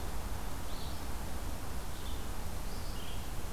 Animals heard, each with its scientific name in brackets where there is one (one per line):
Red-eyed Vireo (Vireo olivaceus)